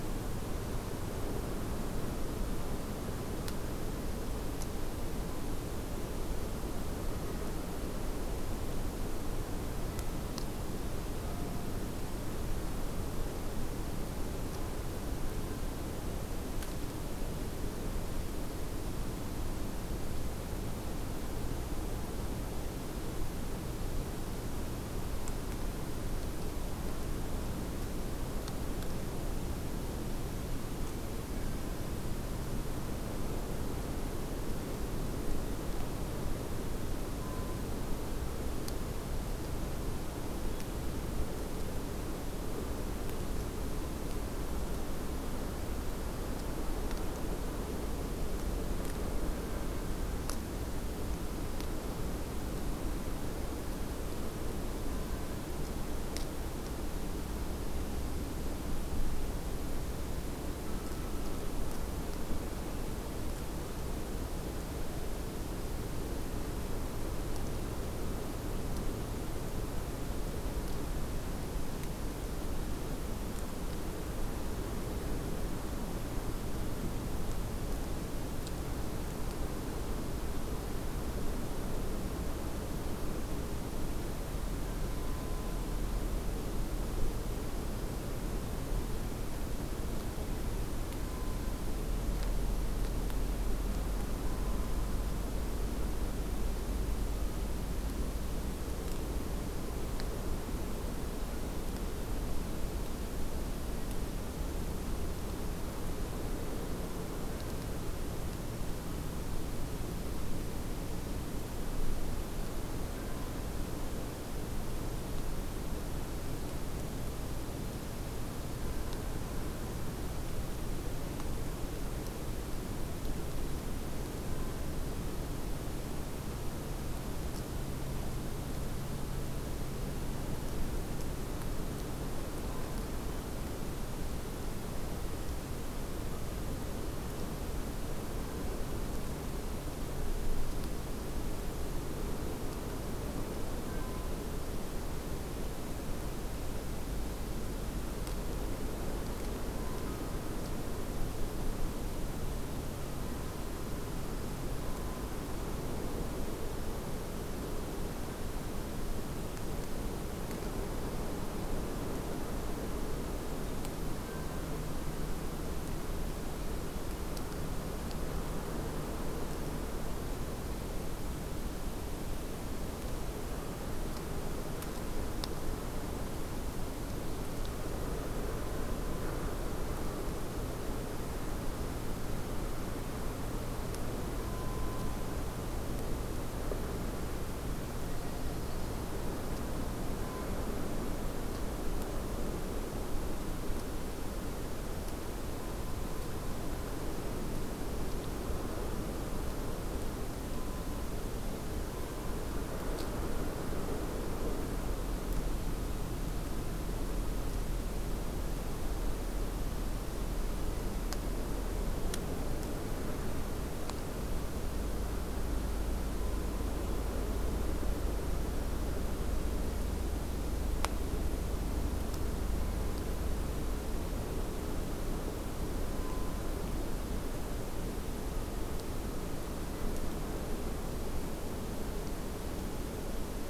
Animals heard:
forest ambience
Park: Acadia National Park